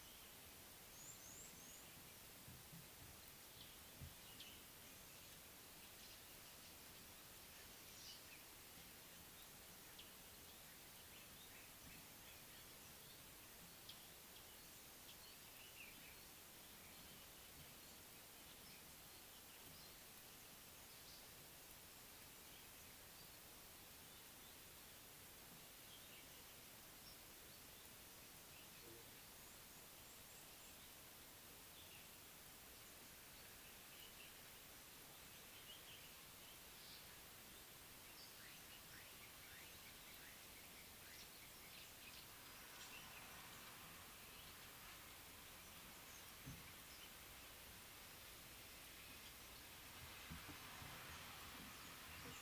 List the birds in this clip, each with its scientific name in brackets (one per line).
Red-cheeked Cordonbleu (Uraeginthus bengalus)